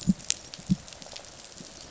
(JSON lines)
{"label": "biophony, rattle response", "recorder": "SoundTrap 500"}